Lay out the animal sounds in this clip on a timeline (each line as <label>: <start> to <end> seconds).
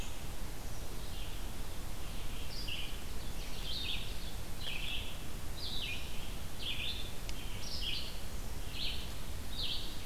Red-eyed Vireo (Vireo olivaceus): 0.0 to 10.1 seconds